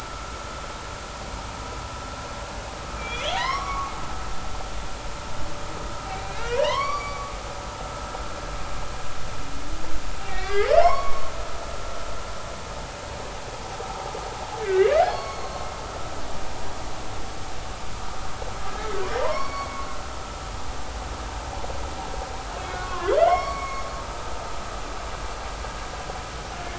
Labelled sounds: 3.0	3.9	humpback whale, 0.90 to 6.0 kHz
6.1	7.3	humpback whale, 0.90 to 4.7 kHz
10.2	11.3	humpback whale, 0.93 to 5.6 kHz
14.6	15.7	humpback whale, 1.0 to 4.5 kHz
19.2	19.8	humpback whale, 0.90 to 5.7 kHz
22.6	23.8	humpback whale, 0.96 to 5.6 kHz

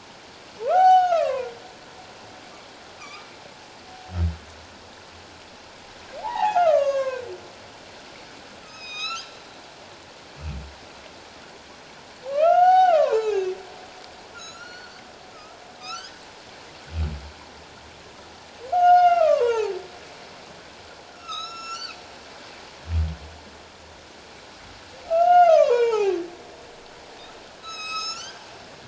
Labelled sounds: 1.1	1.5	humpback whale, 1.5 to 2.8 kHz
3.0	3.3	humpback whale, 1.1 to 1.3 kHz
6.2	7.3	humpback whale, 0.78 to 7.4 kHz
8.6	9.3	humpback whale, 1.2 to 6.9 kHz
12.2	13.4	humpback whale, 0.78 to 6.8 kHz
14.3	15.0	humpback whale, 1.2 to 7.0 kHz
15.8	16.1	humpback whale, 1.2 to 1.7 kHz
18.7	19.7	humpback whale, 0.78 to 5.1 kHz
21.2	22.0	humpback whale, 1.1 to 8.0 kHz
25.1	26.1	humpback whale, 0.78 to 6.5 kHz
27.6	28.4	humpback whale, 1.2 to 8.0 kHz

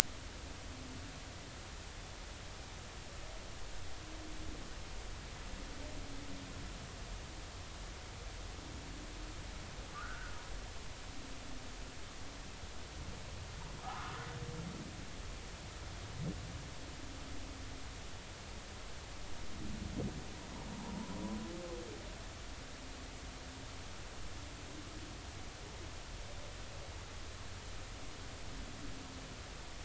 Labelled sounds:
9.9	10.3	humpback whale, 1.1 to 1.7 kHz
13.8	14.2	humpback whale, 0.80 to 1.5 kHz

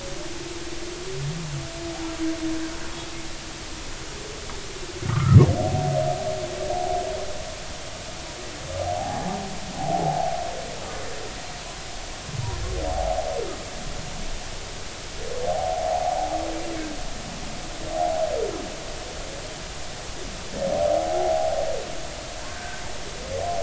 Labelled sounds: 5.1	5.4	humpback whale, 1.0 to 1.5 kHz
8.8	10.3	humpback whale, 0.80 to 0.90 kHz
12.9	13.2	humpback whale, 0.80 to 1.0 kHz
15.4	16.0	humpback whale, 0.80 to 0.96 kHz
17.9	18.2	humpback whale, 0.80 to 0.86 kHz
20.9	21.5	humpback whale, 0.80 to 0.86 kHz
22.5	22.8	humpback whale, 1.4 to 1.7 kHz

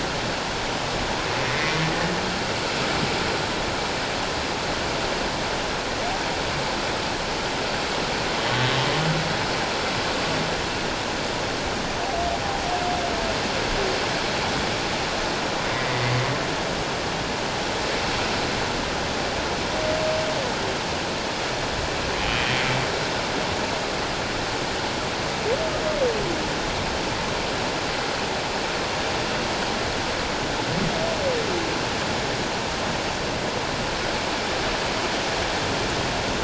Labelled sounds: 1.4	1.9	humpback whale, 1.8 to 2.2 kHz
22.2	22.6	humpback whale, 2.9 to 3.2 kHz

